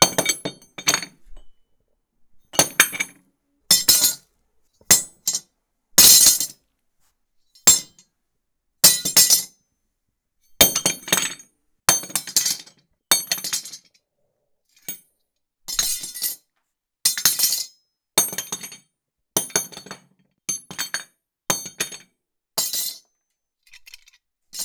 Are people fighting?
no